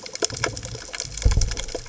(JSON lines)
{"label": "biophony", "recorder": "HydroMoth"}